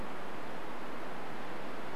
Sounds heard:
forest ambience